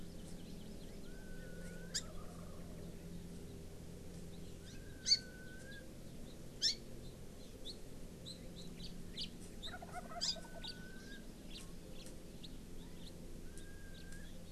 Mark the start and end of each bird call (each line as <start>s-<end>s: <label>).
0.0s-1.2s: Hawaii Amakihi (Chlorodrepanis virens)
4.6s-5.2s: Hawaii Amakihi (Chlorodrepanis virens)
6.6s-6.8s: Hawaii Amakihi (Chlorodrepanis virens)
8.8s-8.9s: House Finch (Haemorhous mexicanus)
9.2s-9.3s: House Finch (Haemorhous mexicanus)
9.6s-10.7s: Wild Turkey (Meleagris gallopavo)
10.2s-10.4s: Hawaii Amakihi (Chlorodrepanis virens)
10.6s-10.7s: House Finch (Haemorhous mexicanus)
11.0s-11.1s: Hawaii Amakihi (Chlorodrepanis virens)
11.5s-11.6s: House Finch (Haemorhous mexicanus)
11.9s-12.0s: House Finch (Haemorhous mexicanus)
12.8s-13.1s: Chinese Hwamei (Garrulax canorus)
12.9s-13.1s: House Finch (Haemorhous mexicanus)
13.9s-14.0s: House Finch (Haemorhous mexicanus)